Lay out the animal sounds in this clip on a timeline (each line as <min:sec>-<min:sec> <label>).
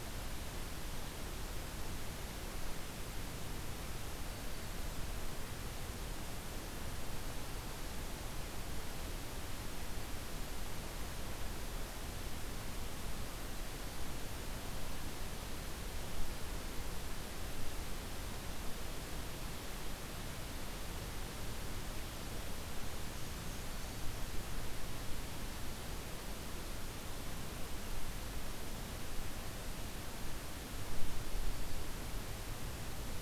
0:04.3-0:04.8 Black-throated Green Warbler (Setophaga virens)
0:13.7-0:14.3 Black-throated Green Warbler (Setophaga virens)
0:22.8-0:24.7 Black-and-white Warbler (Mniotilta varia)
0:23.6-0:24.2 Black-throated Green Warbler (Setophaga virens)
0:31.3-0:32.0 Black-throated Green Warbler (Setophaga virens)